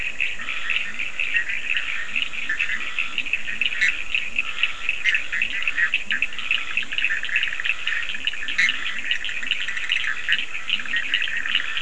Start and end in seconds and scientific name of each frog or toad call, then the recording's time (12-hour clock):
0.0	11.8	Boana bischoffi
0.0	11.8	Scinax perereca
0.0	11.8	Sphaenorhynchus surdus
0.4	11.8	Leptodactylus latrans
1:30am